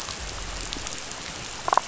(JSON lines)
{"label": "biophony, damselfish", "recorder": "SoundTrap 500"}